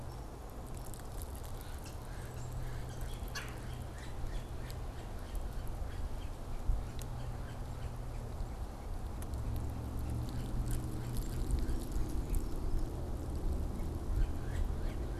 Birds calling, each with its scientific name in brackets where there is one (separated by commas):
Yellow-bellied Sapsucker (Sphyrapicus varius), Red-bellied Woodpecker (Melanerpes carolinus)